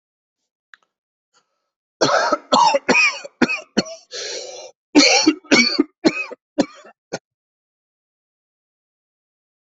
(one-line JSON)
{"expert_labels": [{"quality": "good", "cough_type": "dry", "dyspnea": false, "wheezing": false, "stridor": false, "choking": false, "congestion": false, "nothing": true, "diagnosis": "upper respiratory tract infection", "severity": "severe"}], "age": 43, "gender": "male", "respiratory_condition": true, "fever_muscle_pain": false, "status": "symptomatic"}